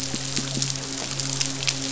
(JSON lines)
{"label": "biophony, midshipman", "recorder": "SoundTrap 500"}
{"label": "biophony", "recorder": "SoundTrap 500"}